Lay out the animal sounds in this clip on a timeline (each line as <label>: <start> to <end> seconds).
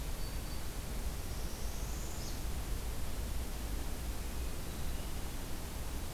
Black-throated Green Warbler (Setophaga virens): 0.0 to 0.9 seconds
Northern Parula (Setophaga americana): 1.3 to 2.5 seconds
Hermit Thrush (Catharus guttatus): 4.0 to 5.4 seconds